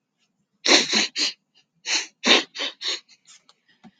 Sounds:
Sniff